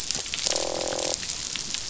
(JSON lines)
{"label": "biophony, croak", "recorder": "SoundTrap 500"}